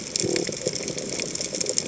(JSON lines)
{"label": "biophony", "recorder": "HydroMoth"}